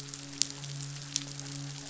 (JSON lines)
{"label": "biophony, midshipman", "recorder": "SoundTrap 500"}